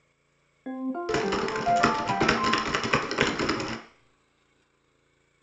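First, a ringtone can be heard. Meanwhile, typing is audible.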